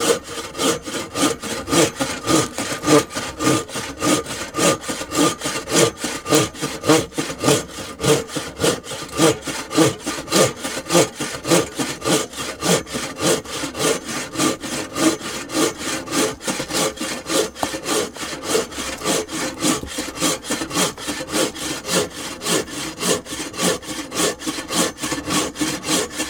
Is it something soft being cut?
no